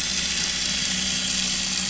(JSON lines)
{"label": "anthrophony, boat engine", "recorder": "SoundTrap 500"}